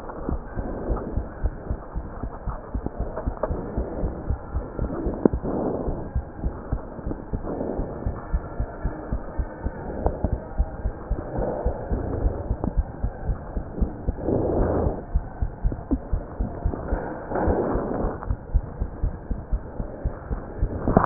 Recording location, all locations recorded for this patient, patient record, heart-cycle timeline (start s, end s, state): pulmonary valve (PV)
aortic valve (AV)+pulmonary valve (PV)+tricuspid valve (TV)+mitral valve (MV)
#Age: Child
#Sex: Female
#Height: 96.0 cm
#Weight: 13.9 kg
#Pregnancy status: False
#Murmur: Absent
#Murmur locations: nan
#Most audible location: nan
#Systolic murmur timing: nan
#Systolic murmur shape: nan
#Systolic murmur grading: nan
#Systolic murmur pitch: nan
#Systolic murmur quality: nan
#Diastolic murmur timing: nan
#Diastolic murmur shape: nan
#Diastolic murmur grading: nan
#Diastolic murmur pitch: nan
#Diastolic murmur quality: nan
#Outcome: Normal
#Campaign: 2015 screening campaign
0.00	0.08	unannotated
0.08	0.26	diastole
0.26	0.40	S1
0.40	0.58	systole
0.58	0.70	S2
0.70	0.86	diastole
0.86	1.02	S1
1.02	1.14	systole
1.14	1.26	S2
1.26	1.42	diastole
1.42	1.54	S1
1.54	1.70	systole
1.70	1.78	S2
1.78	1.96	diastole
1.96	2.06	S1
2.06	2.22	systole
2.22	2.32	S2
2.32	2.46	diastole
2.46	2.58	S1
2.58	2.74	systole
2.74	2.82	S2
2.82	2.98	diastole
2.98	3.10	S1
3.10	3.22	systole
3.22	3.34	S2
3.34	3.48	diastole
3.48	3.60	S1
3.60	3.76	systole
3.76	3.88	S2
3.88	4.00	diastole
4.00	4.14	S1
4.14	4.28	systole
4.28	4.40	S2
4.40	4.54	diastole
4.54	4.66	S1
4.66	4.80	systole
4.80	4.90	S2
4.90	5.04	diastole
5.04	5.18	S1
5.18	5.32	systole
5.32	5.42	S2
5.42	5.60	diastole
5.60	5.74	S1
5.74	5.86	systole
5.86	5.98	S2
5.98	6.14	diastole
6.14	6.24	S1
6.24	6.42	systole
6.42	6.54	S2
6.54	6.70	diastole
6.70	6.80	S1
6.80	7.06	systole
7.06	7.18	S2
7.18	7.32	diastole
7.32	7.42	S1
7.42	7.56	systole
7.56	7.66	S2
7.66	7.78	diastole
7.78	7.90	S1
7.90	8.06	systole
8.06	8.18	S2
8.18	8.32	diastole
8.32	8.44	S1
8.44	8.56	systole
8.56	8.68	S2
8.68	8.84	diastole
8.84	8.94	S1
8.94	9.12	systole
9.12	9.22	S2
9.22	9.38	diastole
9.38	9.48	S1
9.48	9.64	systole
9.64	9.76	S2
9.76	9.96	diastole
9.96	10.14	S1
10.14	10.30	systole
10.30	10.40	S2
10.40	10.56	diastole
10.56	10.70	S1
10.70	10.84	systole
10.84	10.94	S2
10.94	11.10	diastole
11.10	11.20	S1
11.20	11.36	systole
11.36	11.48	S2
11.48	11.64	diastole
11.64	11.76	S1
11.76	11.90	systole
11.90	12.04	S2
12.04	12.18	diastole
12.18	12.34	S1
12.34	12.46	systole
12.46	12.58	S2
12.58	12.74	diastole
12.74	12.88	S1
12.88	13.02	systole
13.02	13.12	S2
13.12	13.26	diastole
13.26	13.38	S1
13.38	13.54	systole
13.54	13.64	S2
13.64	13.80	diastole
13.80	13.92	S1
13.92	14.06	systole
14.06	14.16	S2
14.16	14.28	diastole
14.28	21.06	unannotated